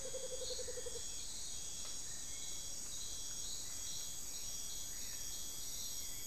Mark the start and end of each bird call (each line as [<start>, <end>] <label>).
[0.00, 1.47] Amazonian Motmot (Momotus momota)
[0.00, 6.26] Black-billed Thrush (Turdus ignobilis)
[1.77, 6.26] Hauxwell's Thrush (Turdus hauxwelli)